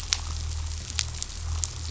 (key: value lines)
label: anthrophony, boat engine
recorder: SoundTrap 500